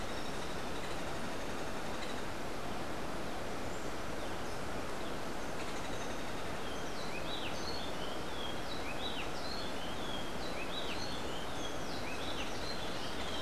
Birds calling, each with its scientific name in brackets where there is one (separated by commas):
Rufous-breasted Wren (Pheugopedius rutilus)